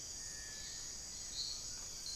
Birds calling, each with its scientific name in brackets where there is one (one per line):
Hauxwell's Thrush (Turdus hauxwelli)